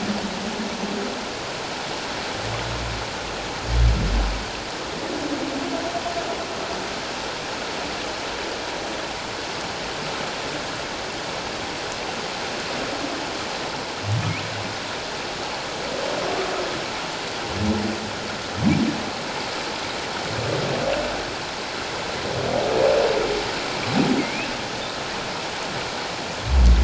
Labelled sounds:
24.2	24.5	humpback whale, 2.0 to 2.8 kHz

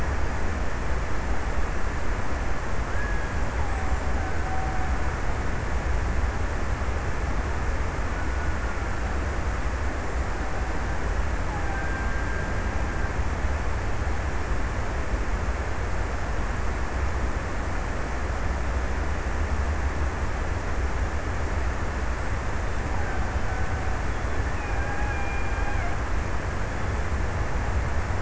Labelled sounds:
2.4	6.4	killer whale, Bigg's (transient), 0.55 to 1.9 kHz
7.9	9.4	killer whale, Bigg's (transient), 1.2 to 1.7 kHz
11.4	14.0	killer whale, Bigg's (transient), 1.3 to 1.8 kHz
22.5	26.7	killer whale, Bigg's (transient), 0.54 to 2.9 kHz

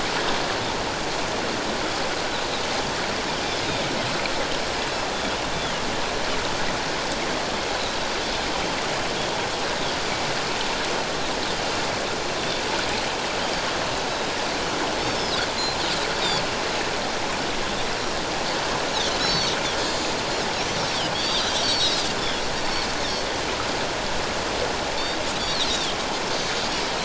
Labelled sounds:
15.2	15.4	Pacific white-sided dolphin, 4.9 to 5.4 kHz
19.2	20.2	Pacific white-sided dolphin, 3.5 to 7.2 kHz
20.5	22.4	Pacific white-sided dolphin, 3.1 to 8.0 kHz
25.4	26.0	Pacific white-sided dolphin, 3.1 to 4.7 kHz
26.4	26.7	Pacific white-sided dolphin, 3.8 to 4.0 kHz

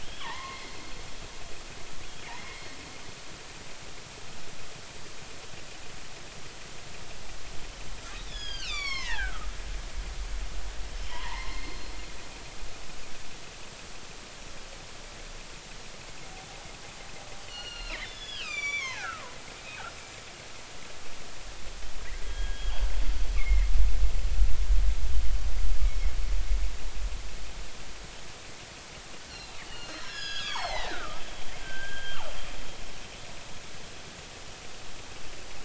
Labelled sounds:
0.0	0.8	killer whale, northern resident, G clan, 0.80 to 4.4 kHz
2.4	2.7	killer whale, northern resident, G clan, 2.0 to 2.2 kHz
8.3	9.5	killer whale, northern resident, G clan, 0.80 to 7.3 kHz
11.1	11.9	killer whale, northern resident, G clan, 0.80 to 4.4 kHz
17.4	19.4	killer whale, northern resident, G clan, 0.80 to 7.5 kHz
22.2	22.8	killer whale, northern resident, G clan, 1.6 to 3.3 kHz
23.3	23.7	killer whale, northern resident, G clan, 1.8 to 2.7 kHz
29.3	31.2	killer whale, northern resident, G clan, 0.80 to 6.9 kHz
31.6	32.3	killer whale, northern resident, G clan, 1.1 to 3.3 kHz

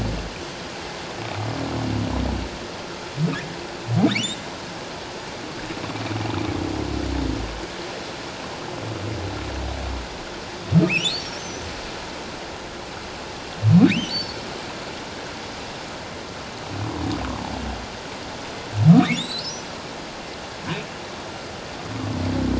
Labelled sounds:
10.9	11.4	humpback whale, 2.1 to 5.8 kHz
13.9	14.4	humpback whale, 2.1 to 4.7 kHz
19.2	19.7	humpback whale, 3.3 to 8.0 kHz

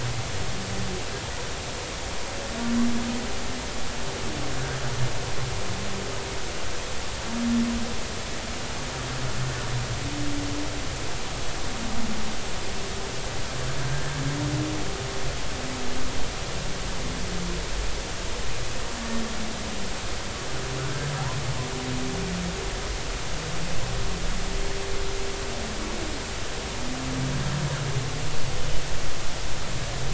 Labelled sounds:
13.8	14.1	humpback whale, 1.5 to 1.6 kHz

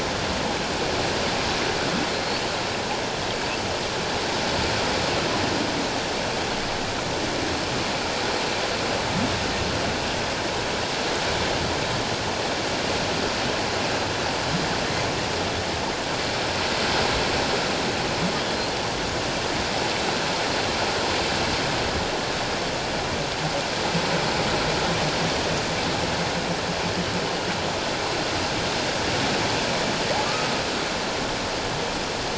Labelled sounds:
2.1	2.4	humpback whale, 4.2 to 4.5 kHz

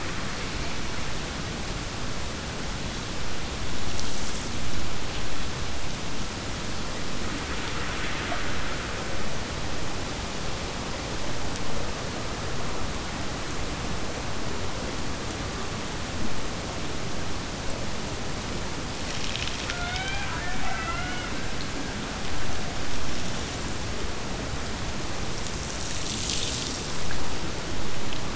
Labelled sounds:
19.6	21.8	killer whale, Bigg's (transient), Gulf of Alaska transient, 0.48 to 4.2 kHz

